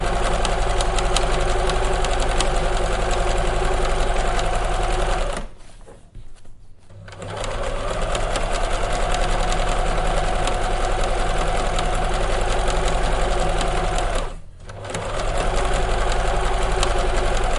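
A sewing machine runs loudly indoors. 0.0 - 5.6
A sewing machine runs loudly indoors. 6.9 - 17.6

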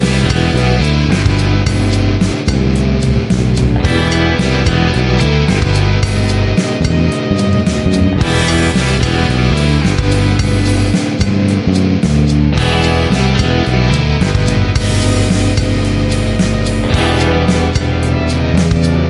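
A rhythmic metallic sound created by several instruments. 0.0 - 19.1

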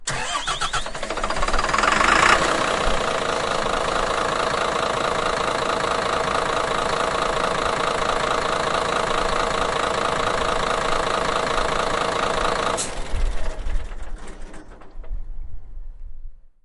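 A vehicle engine starts. 0.1 - 2.5
Vehicle engine running. 2.6 - 13.5
The engine of a vehicle shuts down. 13.5 - 16.2

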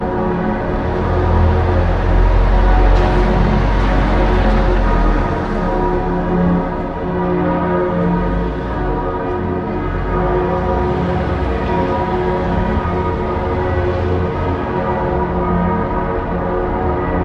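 Bells ringing repeatedly with a metallic tone in a consistent pattern. 0.0 - 17.2

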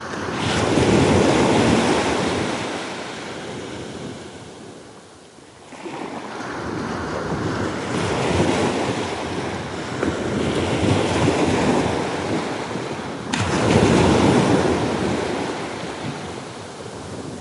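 Waves crashing on the beach. 0.0 - 3.9
Waves crashing on the beach. 6.2 - 9.6
Waves crashing and wind blowing at the beach. 9.8 - 13.1
Waves crashing on the beach. 13.3 - 16.4

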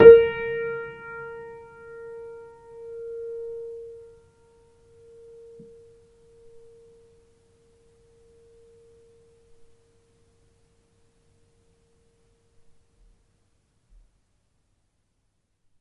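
A single piano key is played and fades out. 0.0 - 10.5

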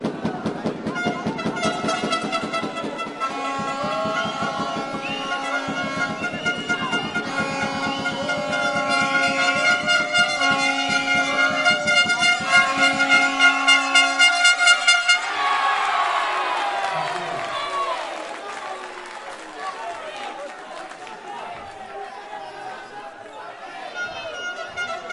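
Drums playing while a crowd cheers at a game. 0.6 - 15.3
Low horns transition into more piercing horn sounds amid crowd cheering at a game. 0.6 - 15.3
The crowd yells, cheers, and claps at a basketball game. 15.3 - 25.1

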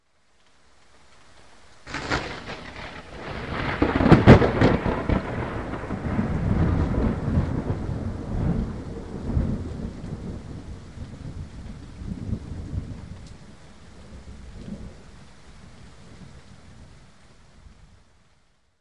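Rain is falling continuously. 0.0 - 18.8
A loud thunder fades out in the distance. 1.9 - 13.4

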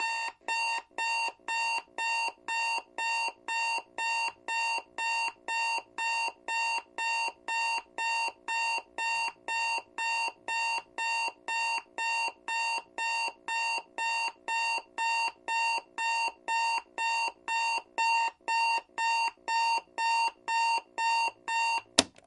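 An alarm clock beeps in a steady pattern. 0.0 - 21.8
A loud click as an alarm clock is turned off. 21.9 - 22.1

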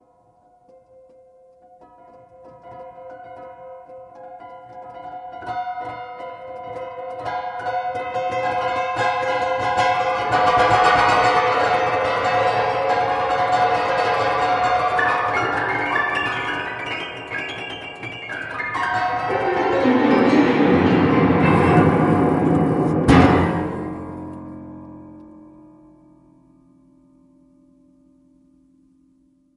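A piano is played continuously in an eerie, creepy way, fading in at the beginning, becoming loudest in the middle, and fading away at the end. 0.0 - 29.6

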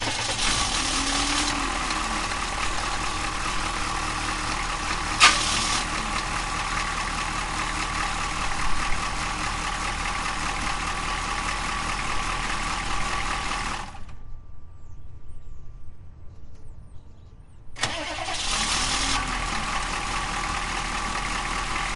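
Truck engine starting. 0.0 - 2.2
An engine revving. 2.1 - 14.5
Truck engine starting. 5.1 - 5.9
Truck engine starting. 17.7 - 19.2
An engine revving. 19.2 - 22.0

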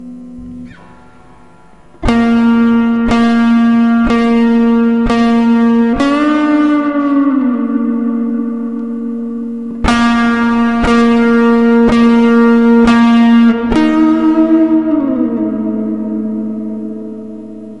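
A person is rhythmically playing an echoing blues guitar with a pause at the beginning. 0.0 - 17.8

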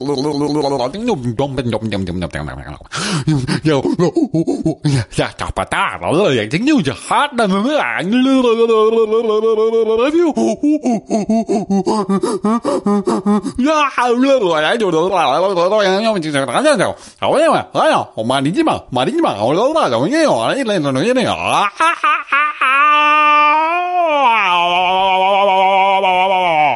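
Human making slurring, unusual noises. 0.1 - 26.8
A human imitating monkey noises. 4.0 - 5.3

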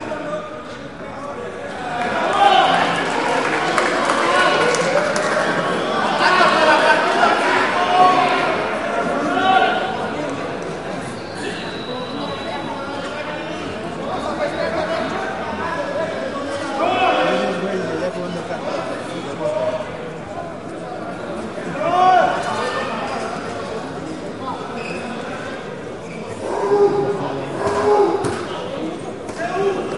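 Players shout during a fierce wallball-handball match while a crowd cheers and applauds. 0.1 - 30.0

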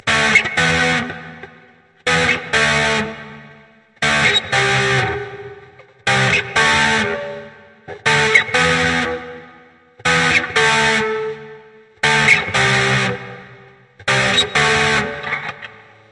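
A rhythmic electric guitar plays. 0.0 - 15.8

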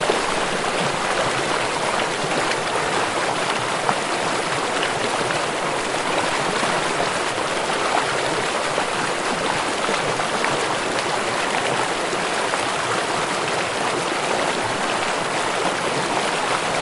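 A waterfall flows loudly and continuously into a river. 0.0 - 16.8

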